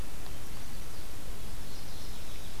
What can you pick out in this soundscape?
Mourning Warbler